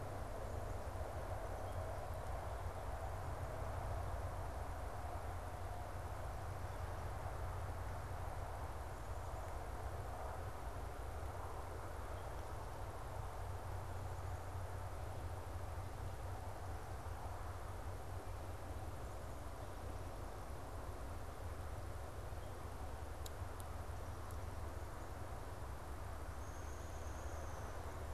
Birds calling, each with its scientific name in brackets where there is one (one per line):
Downy Woodpecker (Dryobates pubescens)